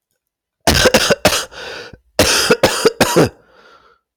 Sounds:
Cough